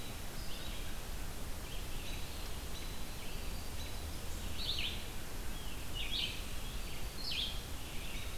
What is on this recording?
American Robin, Red-eyed Vireo, Black-capped Chickadee